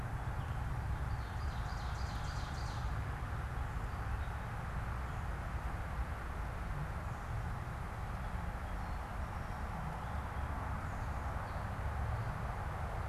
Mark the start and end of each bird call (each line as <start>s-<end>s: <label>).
0.0s-5.3s: Gray Catbird (Dumetella carolinensis)
0.8s-2.9s: Ovenbird (Seiurus aurocapilla)
8.4s-13.1s: Gray Catbird (Dumetella carolinensis)